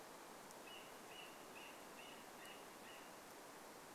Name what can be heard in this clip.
unidentified sound